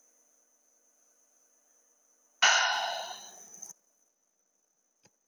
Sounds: Sigh